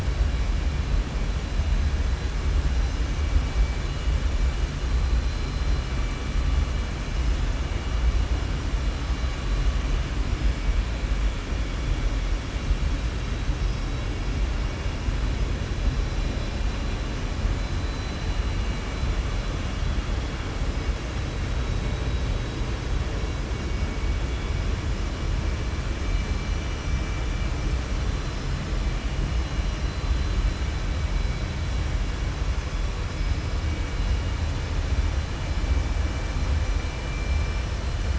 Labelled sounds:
2.7	3.3	vessel noise, 5.1 to 6.4 kHz

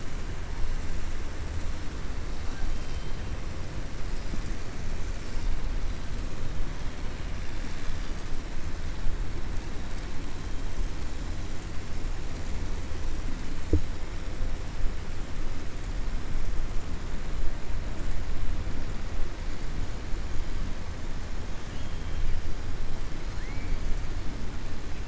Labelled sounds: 23.3	23.7	killer whale, 1.4 to 2.4 kHz

